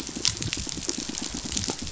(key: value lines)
label: biophony, pulse
recorder: SoundTrap 500